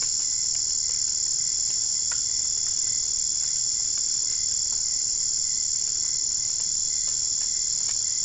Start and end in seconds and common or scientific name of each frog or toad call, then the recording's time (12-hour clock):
none
3:30am